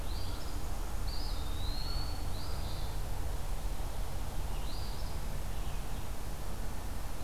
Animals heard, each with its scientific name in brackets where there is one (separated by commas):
Eastern Wood-Pewee (Contopus virens), Eastern Phoebe (Sayornis phoebe)